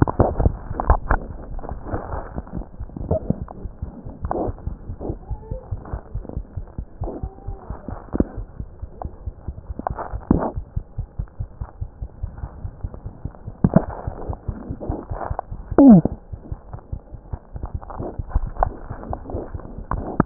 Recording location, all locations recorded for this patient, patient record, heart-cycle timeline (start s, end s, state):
aortic valve (AV)
aortic valve (AV)+mitral valve (MV)
#Age: Neonate
#Sex: Female
#Height: 49.0 cm
#Weight: 3.365 kg
#Pregnancy status: False
#Murmur: Present
#Murmur locations: mitral valve (MV)
#Most audible location: mitral valve (MV)
#Systolic murmur timing: Early-systolic
#Systolic murmur shape: Decrescendo
#Systolic murmur grading: I/VI
#Systolic murmur pitch: Low
#Systolic murmur quality: Blowing
#Diastolic murmur timing: nan
#Diastolic murmur shape: nan
#Diastolic murmur grading: nan
#Diastolic murmur pitch: nan
#Diastolic murmur quality: nan
#Outcome: Abnormal
#Campaign: 2015 screening campaign
0.00	10.54	unannotated
10.54	10.65	S1
10.65	10.74	systole
10.74	10.84	S2
10.84	10.96	diastole
10.96	11.05	S1
11.05	11.16	systole
11.16	11.26	S2
11.26	11.38	diastole
11.38	11.47	S1
11.47	11.59	systole
11.59	11.68	S2
11.68	11.80	diastole
11.80	11.90	S1
11.90	12.01	systole
12.01	12.08	S2
12.08	12.22	diastole
12.22	12.32	S1
12.32	12.42	systole
12.42	12.50	S2
12.50	12.63	diastole
12.63	12.71	S1
12.71	12.82	systole
12.82	12.92	S2
12.92	13.04	diastole
13.04	13.12	S1
13.12	13.24	systole
13.24	13.33	S2
13.33	13.44	diastole
13.44	13.53	S1
13.53	20.26	unannotated